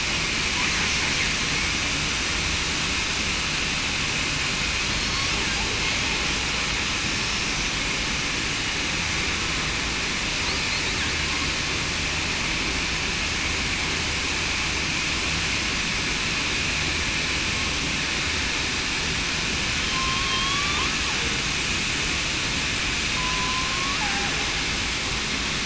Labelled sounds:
19.9	20.8	killer whale, southern resident, 1.0 to 3.4 kHz
23.2	23.7	killer whale, southern resident, 0.94 to 1.1 kHz

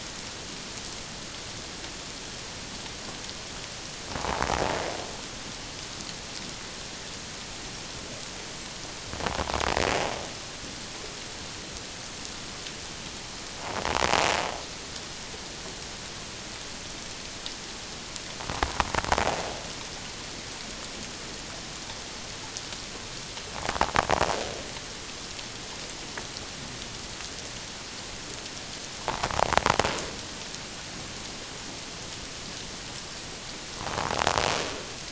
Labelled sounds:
29.0	29.3	invertebrate grinding on or near the hydrophone, 0.78 to 1.2 kHz

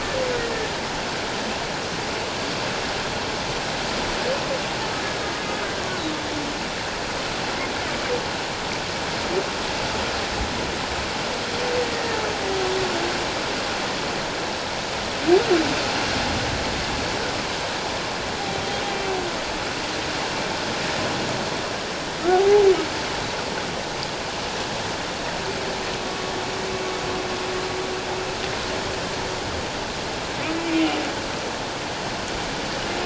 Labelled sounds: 22.3	22.6	humpback whale, 0.78 to 0.91 kHz
26.0	26.2	humpback whale, 1.1 to 1.2 kHz

